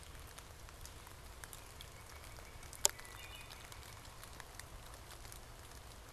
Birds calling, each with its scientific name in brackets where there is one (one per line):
Wood Thrush (Hylocichla mustelina)
Northern Cardinal (Cardinalis cardinalis)